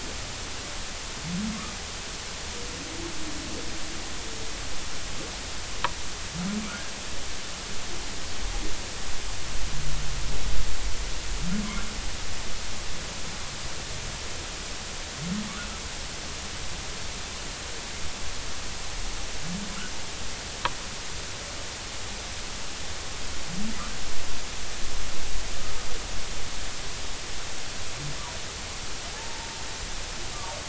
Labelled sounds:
6.7	6.9	humpback whale, 1.2 to 1.7 kHz
29.1	29.5	humpback whale, 0.80 to 0.96 kHz

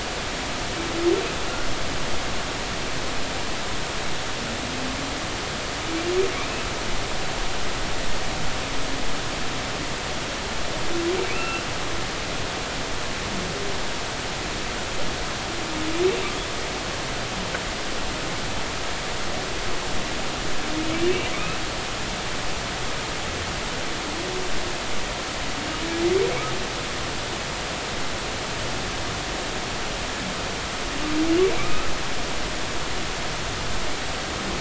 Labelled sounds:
6.3	6.6	humpback whale, 2.1 to 2.7 kHz
11.2	11.6	humpback whale, 1.2 to 2.8 kHz
21.3	21.6	humpback whale, 1.1 to 2.7 kHz
31.6	31.9	humpback whale, 1.1 to 2.7 kHz

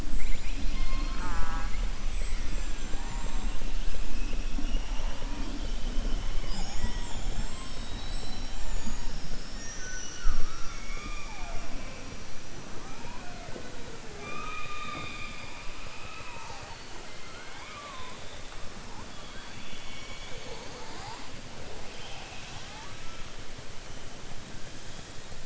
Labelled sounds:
0.1	1.8	killer whale, southern resident, 0.31 to 5.8 kHz
17.1	18.1	killer whale, southern resident, 0.57 to 3.2 kHz
21.8	23.0	killer whale, southern resident, 0.70 to 5.9 kHz

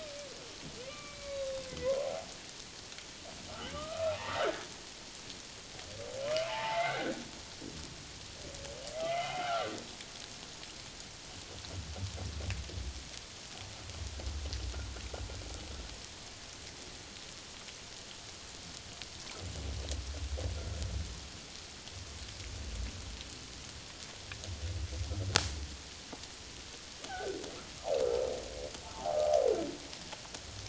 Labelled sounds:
0.8	2.0	humpback whale, 1.0 to 3.9 kHz
3.5	4.7	humpback whale, 0.78 to 2.7 kHz
6.5	7.2	humpback whale, 0.78 to 2.2 kHz
9.1	9.7	humpback whale, 0.78 to 3.1 kHz
27.1	27.4	humpback whale, 1.4 to 1.7 kHz
28.9	29.2	humpback whale, 0.78 to 1.2 kHz

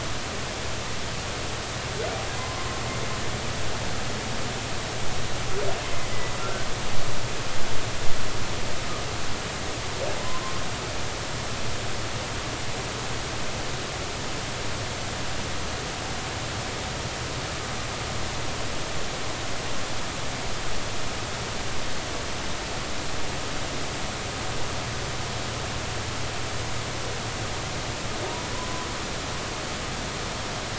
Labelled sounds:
2.4	2.8	humpback whale, 0.96 to 1.1 kHz
7.4	7.7	humpback whale, 1.3 to 1.6 kHz
10.2	10.6	humpback whale, 0.96 to 1.1 kHz
28.5	28.9	humpback whale, 0.96 to 1.1 kHz

